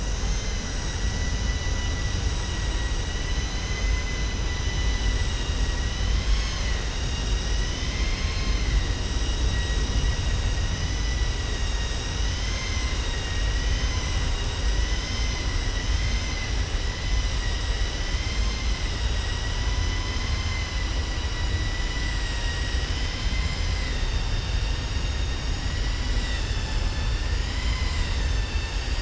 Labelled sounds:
3.2	4.2	vessel noise, 5.1 to 8.0 kHz
20.1	20.7	vessel noise, 1.1 to 3.1 kHz

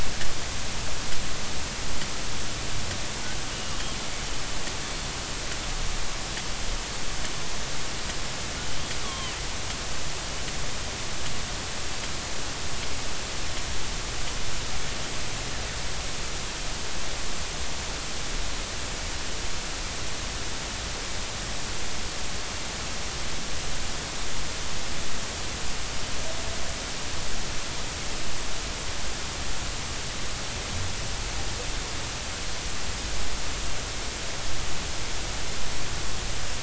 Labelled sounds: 3.5	3.8	killer whale, northern resident, G clan, GG subclan, call N23ii, 2.8 to 3.0 kHz
8.7	9.3	killer whale, northern resident, G clan, GG subclan, call N23ii, 0.99 to 3.5 kHz

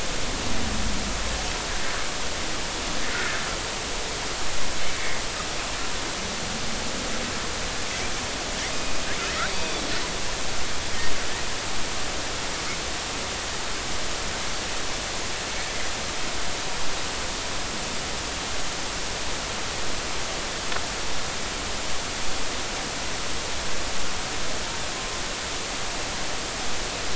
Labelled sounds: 8.7	9.0	Pacific white-sided dolphin, 2.4 to 2.6 kHz
9.5	9.7	Pacific white-sided dolphin, 4.6 to 4.8 kHz

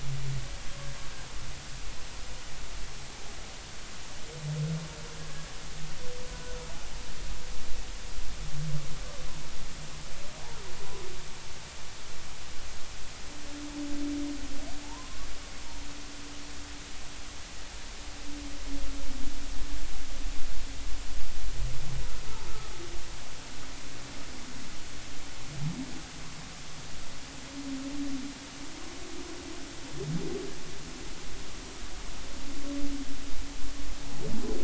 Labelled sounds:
6.3	6.5	humpback whale, 0.96 to 1.0 kHz
14.8	15.3	humpback whale, 0.83 to 1.2 kHz

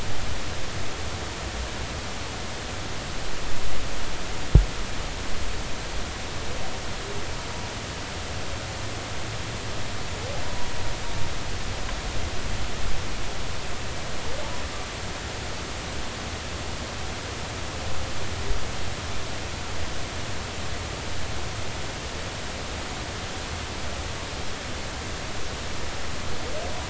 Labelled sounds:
10.4	10.7	humpback whale, 0.90 to 0.99 kHz

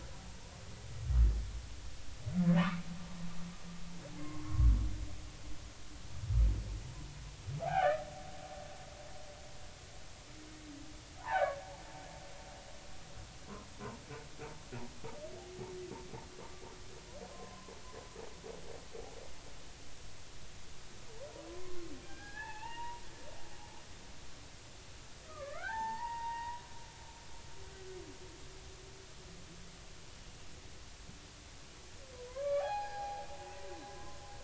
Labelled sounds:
0.3	0.5	humpback whale, 0.86 to 1.0 kHz
2.6	2.8	humpback whale, 0.86 to 1.5 kHz
4.2	4.7	humpback whale, 1.0 to 1.2 kHz
7.6	7.9	humpback whale, 0.80 to 1.7 kHz
11.2	11.6	humpback whale, 0.80 to 2.4 kHz
17.3	17.7	humpback whale, 0.99 to 1.1 kHz
21.5	23.0	humpback whale, 0.80 to 2.9 kHz
25.2	26.6	humpback whale, 0.80 to 2.4 kHz
32.3	34.2	humpback whale, 0.80 to 4.2 kHz

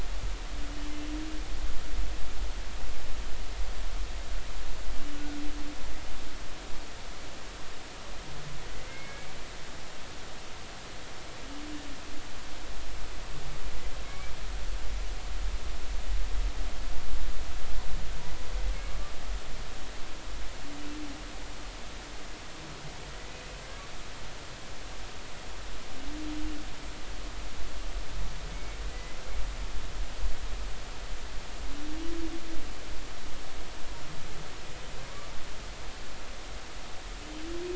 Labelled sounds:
8.9	9.3	humpback whale, 2.1 to 2.3 kHz
14.0	14.3	humpback whale, 2.1 to 2.4 kHz
28.5	29.2	humpback whale, 1.9 to 2.3 kHz

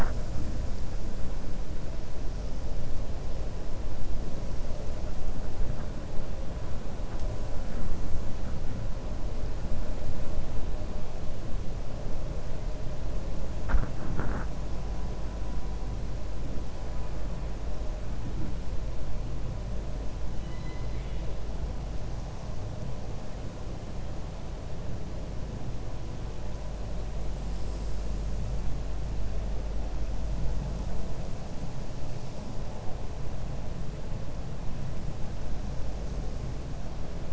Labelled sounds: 20.3	21.3	killer whale, 2.0 to 4.1 kHz

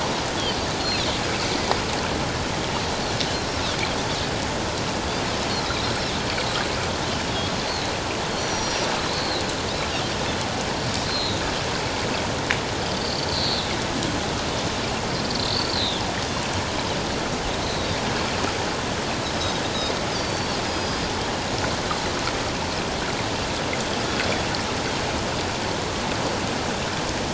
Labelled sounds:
0.4	1.1	Pacific white-sided dolphin, 3.9 to 4.8 kHz
5.8	6.1	Pacific white-sided dolphin, 5.3 to 5.6 kHz
8.3	9.4	Pacific white-sided dolphin, 3.8 to 5.9 kHz
11.1	11.4	Pacific white-sided dolphin, 3.7 to 4.3 kHz
13.0	13.7	Pacific white-sided dolphin, 3.6 to 4.7 kHz
15.5	16.0	Pacific white-sided dolphin, 3.2 to 4.6 kHz
17.6	17.9	Pacific white-sided dolphin, 3.8 to 4.2 kHz
20.1	21.0	Pacific white-sided dolphin, 4.3 to 5.0 kHz

